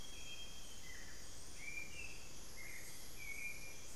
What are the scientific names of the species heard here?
Cyanoloxia rothschildii, Turdus hauxwelli